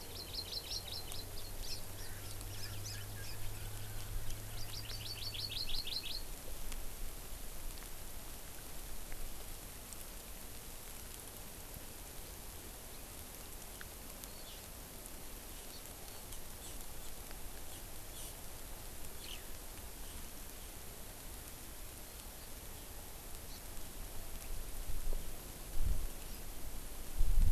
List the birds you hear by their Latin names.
Chlorodrepanis virens, Pternistis erckelii, Alauda arvensis